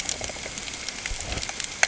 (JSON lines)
{"label": "ambient", "recorder": "HydroMoth"}